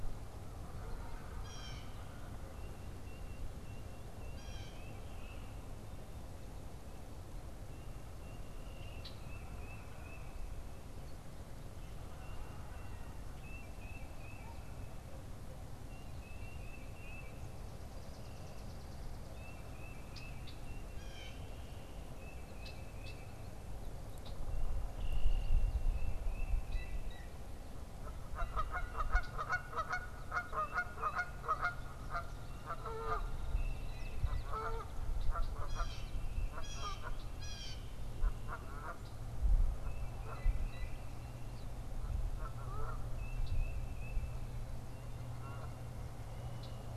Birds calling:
Canada Goose (Branta canadensis), Belted Kingfisher (Megaceryle alcyon), Tufted Titmouse (Baeolophus bicolor), unidentified bird, Blue Jay (Cyanocitta cristata)

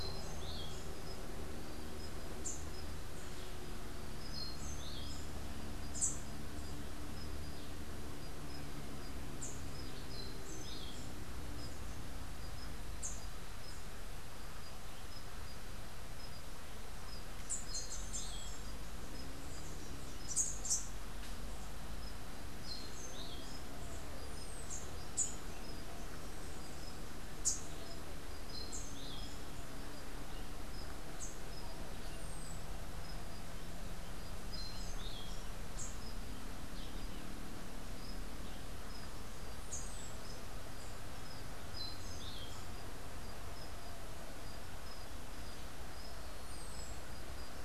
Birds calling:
Orange-billed Nightingale-Thrush (Catharus aurantiirostris), Rufous-capped Warbler (Basileuterus rufifrons), Buff-throated Saltator (Saltator maximus)

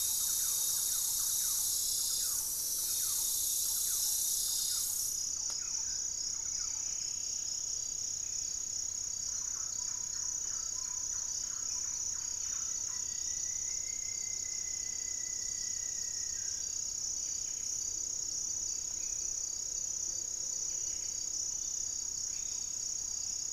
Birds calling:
Yellow-margined Flycatcher (Tolmomyias assimilis), Buff-breasted Wren (Cantorchilus leucotis), Hauxwell's Thrush (Turdus hauxwelli), Black-tailed Trogon (Trogon melanurus), Striped Woodcreeper (Xiphorhynchus obsoletus), Thrush-like Wren (Campylorhynchus turdinus), unidentified bird, Black-faced Antthrush (Formicarius analis), Buff-throated Woodcreeper (Xiphorhynchus guttatus)

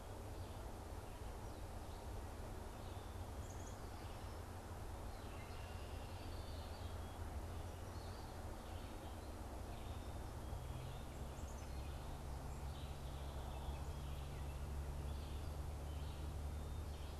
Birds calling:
Red-winged Blackbird (Agelaius phoeniceus), Black-capped Chickadee (Poecile atricapillus)

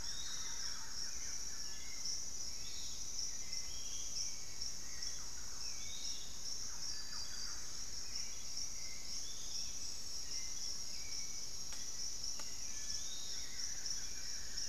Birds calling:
Buff-throated Woodcreeper (Xiphorhynchus guttatus), unidentified bird, Thrush-like Wren (Campylorhynchus turdinus), Piratic Flycatcher (Legatus leucophaius), Hauxwell's Thrush (Turdus hauxwelli)

